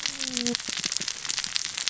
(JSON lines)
{"label": "biophony, cascading saw", "recorder": "SoundTrap 600 or HydroMoth"}